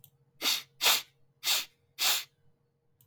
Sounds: Sniff